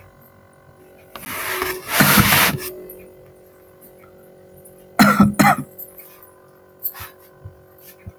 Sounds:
Cough